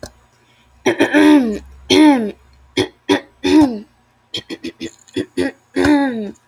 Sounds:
Throat clearing